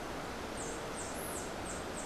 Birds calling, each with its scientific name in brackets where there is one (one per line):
Rufous-tailed Hummingbird (Amazilia tzacatl)